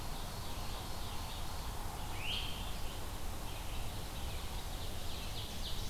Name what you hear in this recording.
Ovenbird, Red-eyed Vireo, Great Crested Flycatcher